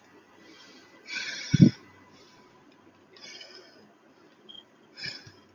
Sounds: Sigh